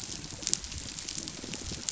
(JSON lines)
{"label": "biophony", "recorder": "SoundTrap 500"}